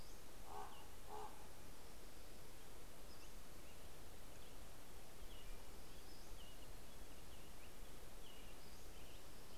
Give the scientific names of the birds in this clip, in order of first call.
Corvus corax, Turdus migratorius, Leiothlypis celata, Empidonax difficilis